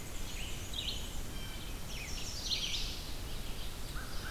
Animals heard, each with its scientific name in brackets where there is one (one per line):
Black-and-white Warbler (Mniotilta varia)
Blue Jay (Cyanocitta cristata)
Red-eyed Vireo (Vireo olivaceus)
Chestnut-sided Warbler (Setophaga pensylvanica)